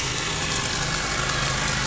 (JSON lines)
{"label": "anthrophony, boat engine", "recorder": "SoundTrap 500"}